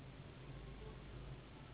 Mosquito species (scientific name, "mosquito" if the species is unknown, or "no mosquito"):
Anopheles gambiae s.s.